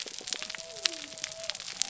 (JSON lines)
{"label": "biophony", "recorder": "SoundTrap 300"}